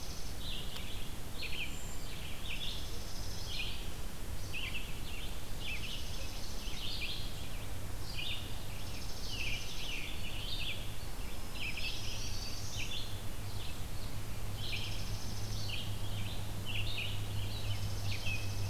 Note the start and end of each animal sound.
[0.00, 18.69] Red-eyed Vireo (Vireo olivaceus)
[2.30, 3.71] Dark-eyed Junco (Junco hyemalis)
[5.47, 6.90] Dark-eyed Junco (Junco hyemalis)
[8.67, 10.18] Dark-eyed Junco (Junco hyemalis)
[11.08, 12.89] Black-throated Green Warbler (Setophaga virens)
[11.51, 12.90] Dark-eyed Junco (Junco hyemalis)
[14.50, 15.77] Dark-eyed Junco (Junco hyemalis)
[17.51, 18.69] Dark-eyed Junco (Junco hyemalis)

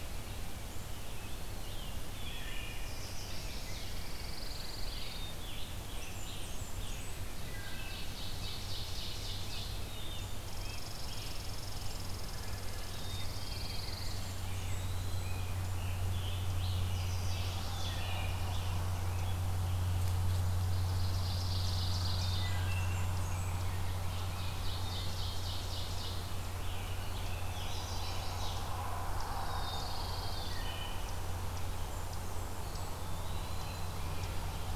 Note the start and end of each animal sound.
[0.86, 2.94] Scarlet Tanager (Piranga olivacea)
[2.07, 2.94] Wood Thrush (Hylocichla mustelina)
[2.71, 3.98] Chestnut-sided Warbler (Setophaga pensylvanica)
[3.52, 5.28] Pine Warbler (Setophaga pinus)
[4.75, 6.85] Scarlet Tanager (Piranga olivacea)
[4.89, 5.78] Black-capped Chickadee (Poecile atricapillus)
[5.61, 7.45] Blackburnian Warbler (Setophaga fusca)
[7.34, 8.19] Wood Thrush (Hylocichla mustelina)
[7.35, 10.00] Ovenbird (Seiurus aurocapilla)
[9.21, 11.39] Scarlet Tanager (Piranga olivacea)
[9.78, 11.00] Black-capped Chickadee (Poecile atricapillus)
[10.40, 14.14] Red Squirrel (Tamiasciurus hudsonicus)
[12.77, 13.65] Black-capped Chickadee (Poecile atricapillus)
[12.93, 14.25] Pine Warbler (Setophaga pinus)
[13.83, 15.45] Blackburnian Warbler (Setophaga fusca)
[14.17, 15.50] Eastern Wood-Pewee (Contopus virens)
[15.70, 17.61] Scarlet Tanager (Piranga olivacea)
[16.62, 18.29] Chestnut-sided Warbler (Setophaga pensylvanica)
[17.70, 18.54] Wood Thrush (Hylocichla mustelina)
[18.35, 19.43] Scarlet Tanager (Piranga olivacea)
[20.53, 22.61] Ovenbird (Seiurus aurocapilla)
[20.90, 22.54] Pine Warbler (Setophaga pinus)
[22.31, 23.79] Blackburnian Warbler (Setophaga fusca)
[22.32, 23.08] Wood Thrush (Hylocichla mustelina)
[23.10, 24.87] Rose-breasted Grosbeak (Pheucticus ludovicianus)
[23.69, 26.47] Ovenbird (Seiurus aurocapilla)
[26.29, 28.28] Scarlet Tanager (Piranga olivacea)
[27.29, 28.82] Chestnut-sided Warbler (Setophaga pensylvanica)
[29.18, 30.74] Pine Warbler (Setophaga pinus)
[29.23, 30.51] Black-capped Chickadee (Poecile atricapillus)
[30.45, 31.09] Wood Thrush (Hylocichla mustelina)
[31.57, 33.01] Blackburnian Warbler (Setophaga fusca)
[32.55, 33.92] Eastern Wood-Pewee (Contopus virens)

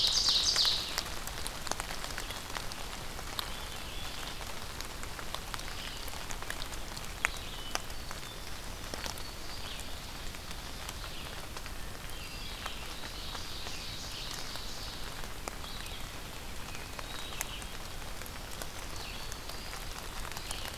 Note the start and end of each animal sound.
[0.00, 1.15] Ovenbird (Seiurus aurocapilla)
[0.00, 20.77] Red-eyed Vireo (Vireo olivaceus)
[5.23, 6.46] Eastern Wood-Pewee (Contopus virens)
[6.94, 8.57] Hermit Thrush (Catharus guttatus)
[8.31, 9.83] Black-throated Green Warbler (Setophaga virens)
[11.28, 12.81] Hermit Thrush (Catharus guttatus)
[12.44, 15.25] Ovenbird (Seiurus aurocapilla)
[16.50, 17.61] Hermit Thrush (Catharus guttatus)
[18.15, 19.54] Black-throated Green Warbler (Setophaga virens)
[19.39, 20.77] Eastern Wood-Pewee (Contopus virens)

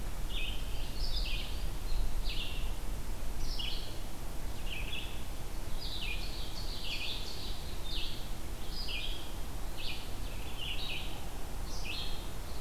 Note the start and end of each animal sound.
[0.29, 12.61] Red-eyed Vireo (Vireo olivaceus)
[5.54, 7.61] Ovenbird (Seiurus aurocapilla)

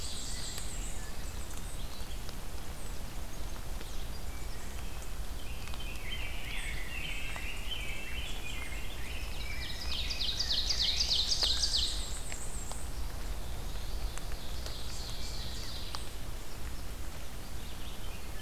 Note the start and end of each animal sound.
[0.00, 0.78] Ovenbird (Seiurus aurocapilla)
[0.00, 1.11] Black-and-white Warbler (Mniotilta varia)
[0.81, 2.21] Eastern Wood-Pewee (Contopus virens)
[5.20, 11.20] Rose-breasted Grosbeak (Pheucticus ludovicianus)
[7.02, 8.20] Red-breasted Nuthatch (Sitta canadensis)
[8.85, 10.29] Black-throated Green Warbler (Setophaga virens)
[9.54, 12.04] Ovenbird (Seiurus aurocapilla)
[10.88, 13.00] Black-and-white Warbler (Mniotilta varia)
[13.46, 15.94] Ovenbird (Seiurus aurocapilla)

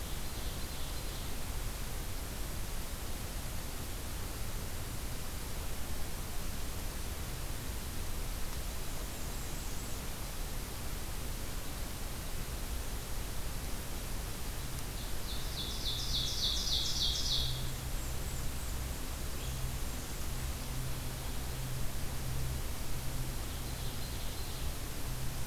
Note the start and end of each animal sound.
[0.09, 1.54] Ovenbird (Seiurus aurocapilla)
[8.66, 10.26] Blackburnian Warbler (Setophaga fusca)
[14.74, 17.77] Ovenbird (Seiurus aurocapilla)
[17.66, 20.59] Blackburnian Warbler (Setophaga fusca)
[23.15, 25.14] Ovenbird (Seiurus aurocapilla)

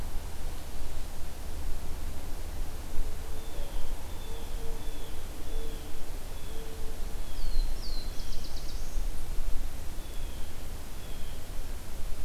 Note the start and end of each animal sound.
[3.24, 8.49] Blue Jay (Cyanocitta cristata)
[7.32, 9.02] Black-throated Blue Warbler (Setophaga caerulescens)
[9.90, 11.46] Blue Jay (Cyanocitta cristata)

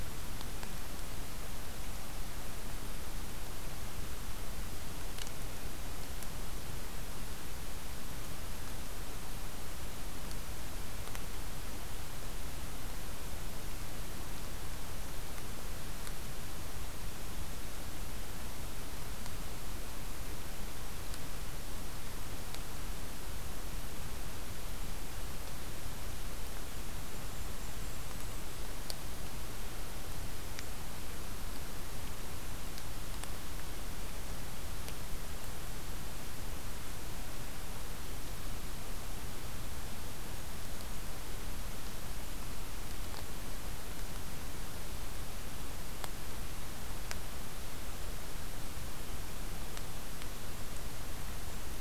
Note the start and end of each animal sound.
[27.03, 28.72] Golden-crowned Kinglet (Regulus satrapa)

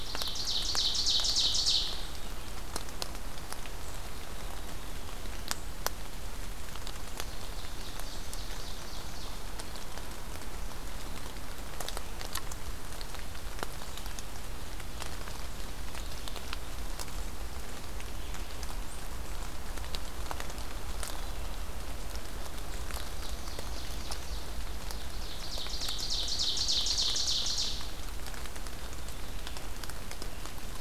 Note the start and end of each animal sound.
[0.00, 2.40] Ovenbird (Seiurus aurocapilla)
[4.75, 5.64] Blue Jay (Cyanocitta cristata)
[6.93, 9.53] Ovenbird (Seiurus aurocapilla)
[22.57, 28.02] Ovenbird (Seiurus aurocapilla)

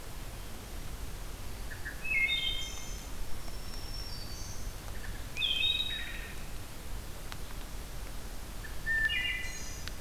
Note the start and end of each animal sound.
[1.50, 3.13] Wood Thrush (Hylocichla mustelina)
[3.14, 5.13] Black-throated Green Warbler (Setophaga virens)
[4.79, 6.63] Wood Thrush (Hylocichla mustelina)
[8.47, 10.01] Wood Thrush (Hylocichla mustelina)

